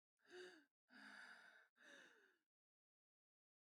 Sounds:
Sigh